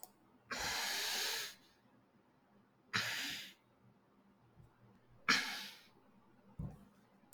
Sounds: Sneeze